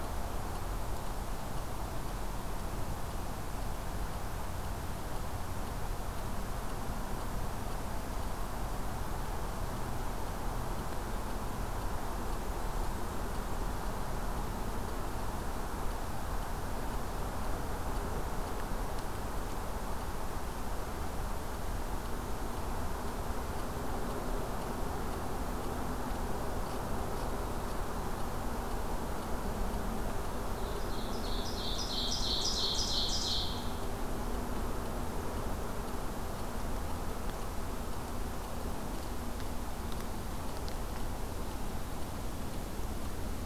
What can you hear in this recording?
Ovenbird